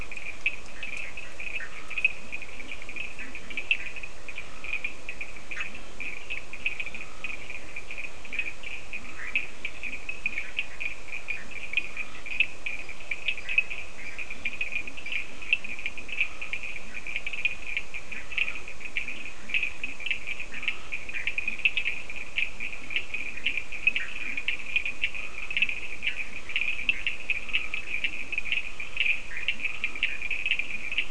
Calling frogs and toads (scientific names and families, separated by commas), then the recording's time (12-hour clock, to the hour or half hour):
Leptodactylus latrans (Leptodactylidae), Sphaenorhynchus surdus (Hylidae), Boana bischoffi (Hylidae), Scinax perereca (Hylidae)
4am